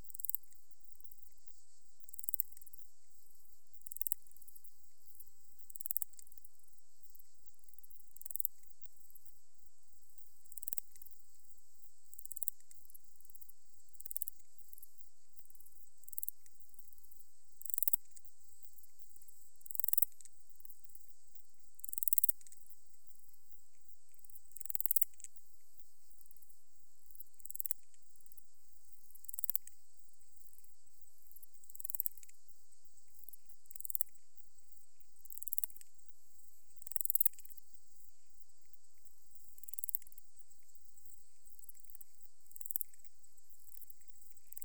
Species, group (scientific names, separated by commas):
Parasteropleurus martorellii, Orthoptera